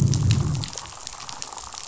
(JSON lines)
{"label": "biophony, damselfish", "recorder": "SoundTrap 500"}
{"label": "biophony, growl", "recorder": "SoundTrap 500"}